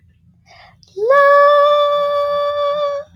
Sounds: Sigh